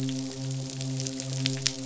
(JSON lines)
{"label": "biophony, midshipman", "recorder": "SoundTrap 500"}